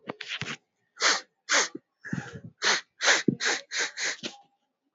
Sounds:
Sniff